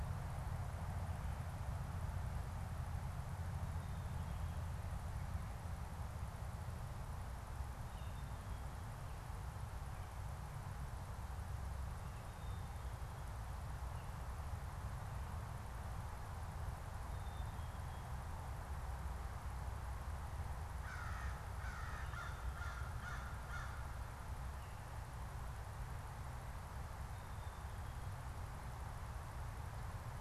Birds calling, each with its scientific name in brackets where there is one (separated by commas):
Black-capped Chickadee (Poecile atricapillus), American Crow (Corvus brachyrhynchos)